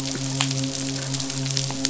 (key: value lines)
label: biophony, midshipman
recorder: SoundTrap 500